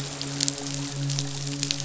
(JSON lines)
{"label": "biophony, midshipman", "recorder": "SoundTrap 500"}